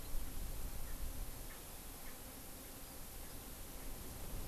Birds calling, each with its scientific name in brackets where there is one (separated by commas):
Erckel's Francolin (Pternistis erckelii)